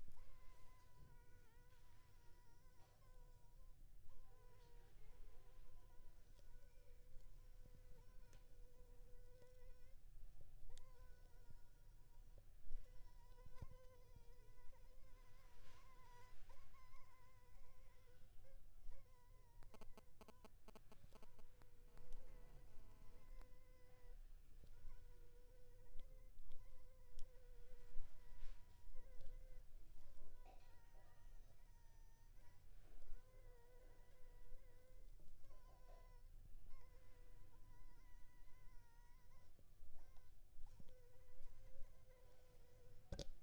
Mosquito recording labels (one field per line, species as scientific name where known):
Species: Anopheles funestus s.s.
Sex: female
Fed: unfed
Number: one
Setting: cup